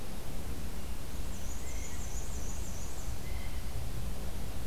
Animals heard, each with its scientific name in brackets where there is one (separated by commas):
Blue Jay (Cyanocitta cristata), Black-and-white Warbler (Mniotilta varia)